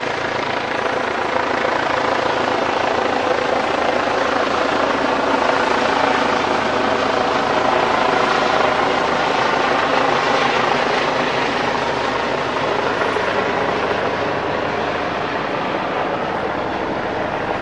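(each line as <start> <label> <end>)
0.0 A police helicopter hovers overhead with its rotating blades producing a steady chopping sound, accompanied by a barking dog, a calling magpie, and a faint humming noise. 17.6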